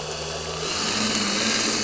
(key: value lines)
label: anthrophony, boat engine
recorder: SoundTrap 300